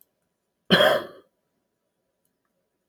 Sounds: Cough